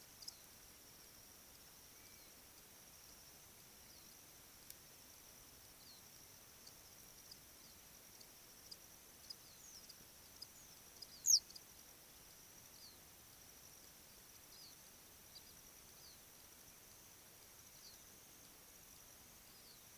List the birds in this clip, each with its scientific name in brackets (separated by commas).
Western Yellow Wagtail (Motacilla flava), African Pipit (Anthus cinnamomeus)